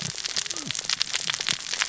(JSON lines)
{"label": "biophony, cascading saw", "recorder": "SoundTrap 600 or HydroMoth"}